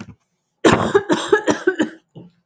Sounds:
Cough